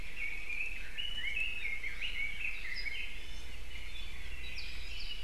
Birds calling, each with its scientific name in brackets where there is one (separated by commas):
Red-billed Leiothrix (Leiothrix lutea), Iiwi (Drepanis coccinea), Apapane (Himatione sanguinea)